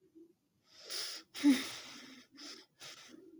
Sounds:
Sigh